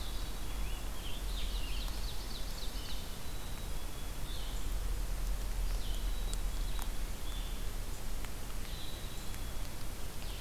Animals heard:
Black-capped Chickadee (Poecile atricapillus), Scarlet Tanager (Piranga olivacea), Ovenbird (Seiurus aurocapilla), Blue-headed Vireo (Vireo solitarius)

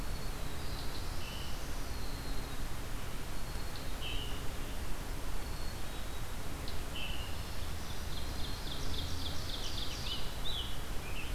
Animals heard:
Scarlet Tanager (Piranga olivacea), Black-throated Green Warbler (Setophaga virens), Black-capped Chickadee (Poecile atricapillus), Black-throated Blue Warbler (Setophaga caerulescens), Ovenbird (Seiurus aurocapilla)

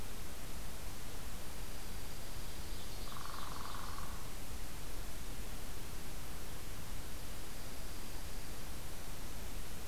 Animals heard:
Ovenbird (Seiurus aurocapilla), Dark-eyed Junco (Junco hyemalis), Northern Flicker (Colaptes auratus)

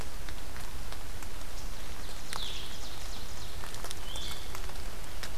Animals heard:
Blue-headed Vireo (Vireo solitarius), Ovenbird (Seiurus aurocapilla)

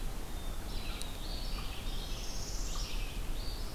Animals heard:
unknown mammal, Eastern Wood-Pewee (Contopus virens), Northern Parula (Setophaga americana), Red-eyed Vireo (Vireo olivaceus)

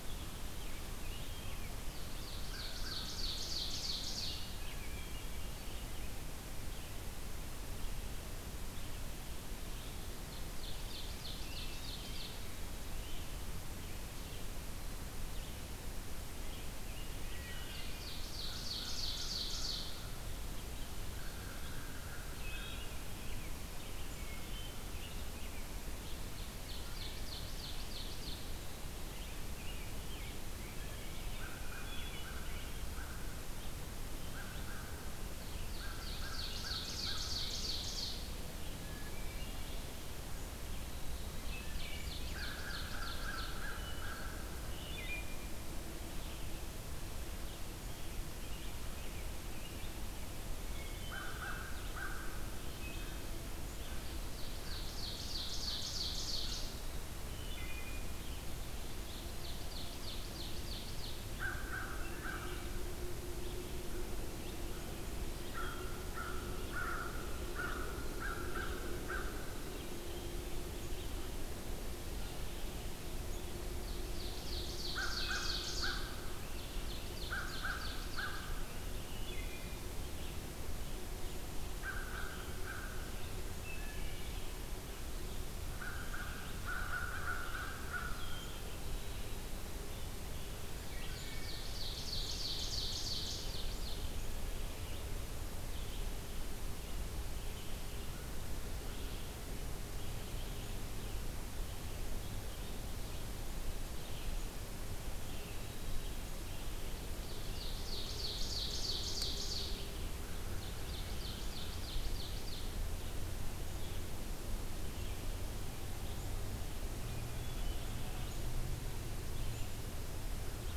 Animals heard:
Wood Thrush (Hylocichla mustelina), Ovenbird (Seiurus aurocapilla), American Crow (Corvus brachyrhynchos), American Robin (Turdus migratorius), Red-eyed Vireo (Vireo olivaceus)

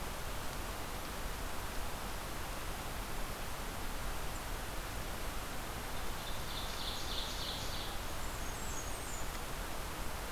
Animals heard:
Ovenbird (Seiurus aurocapilla), Blackburnian Warbler (Setophaga fusca)

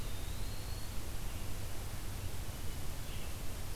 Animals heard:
Red-eyed Vireo (Vireo olivaceus), Eastern Wood-Pewee (Contopus virens)

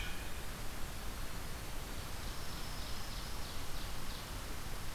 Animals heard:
Dark-eyed Junco (Junco hyemalis), Ovenbird (Seiurus aurocapilla)

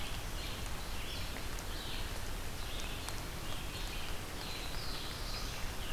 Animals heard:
Red-eyed Vireo (Vireo olivaceus), Hairy Woodpecker (Dryobates villosus), Black-throated Blue Warbler (Setophaga caerulescens)

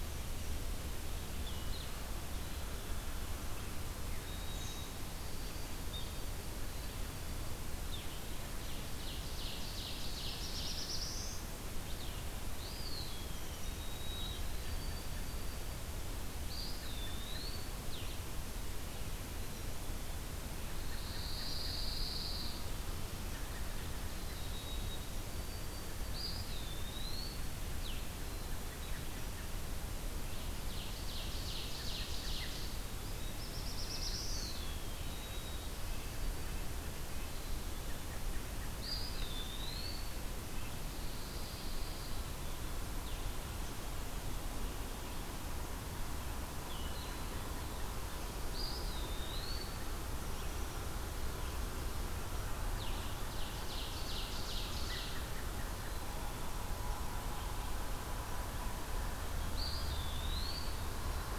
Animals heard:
Black-throated Blue Warbler (Setophaga caerulescens), Black-capped Chickadee (Poecile atricapillus), Chipping Sparrow (Spizella passerina), Ovenbird (Seiurus aurocapilla), Blue-headed Vireo (Vireo solitarius), White-throated Sparrow (Zonotrichia albicollis), American Robin (Turdus migratorius), Eastern Wood-Pewee (Contopus virens), Red-breasted Nuthatch (Sitta canadensis), unidentified call

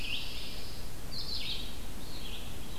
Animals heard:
Pine Warbler (Setophaga pinus), Red-eyed Vireo (Vireo olivaceus)

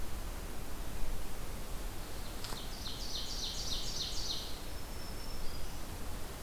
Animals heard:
Ovenbird (Seiurus aurocapilla), Black-throated Green Warbler (Setophaga virens)

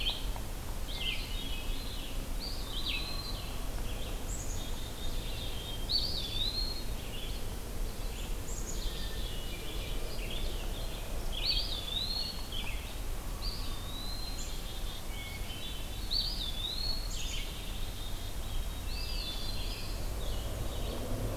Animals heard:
Black-capped Chickadee (Poecile atricapillus), Hermit Thrush (Catharus guttatus), Red-eyed Vireo (Vireo olivaceus), Eastern Wood-Pewee (Contopus virens)

